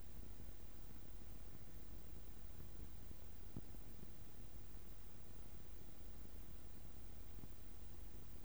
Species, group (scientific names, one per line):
Poecilimon propinquus
Orthoptera